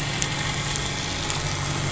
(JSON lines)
{"label": "anthrophony, boat engine", "recorder": "SoundTrap 500"}